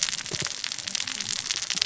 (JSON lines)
{"label": "biophony, cascading saw", "recorder": "SoundTrap 600 or HydroMoth"}